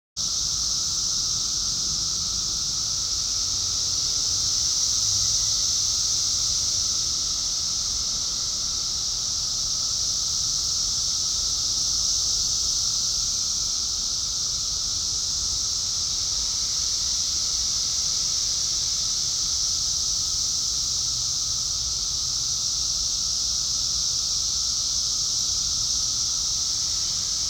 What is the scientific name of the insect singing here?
Magicicada cassini